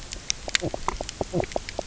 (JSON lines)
{"label": "biophony, knock croak", "recorder": "SoundTrap 300"}